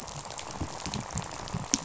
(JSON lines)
{"label": "biophony, rattle", "recorder": "SoundTrap 500"}